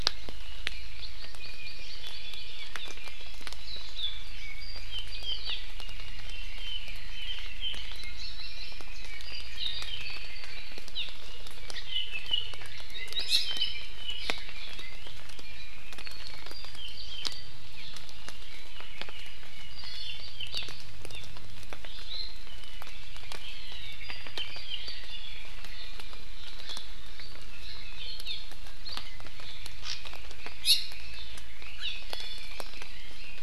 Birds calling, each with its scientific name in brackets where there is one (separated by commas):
Iiwi (Drepanis coccinea), Red-billed Leiothrix (Leiothrix lutea), Hawaii Amakihi (Chlorodrepanis virens), Apapane (Himatione sanguinea)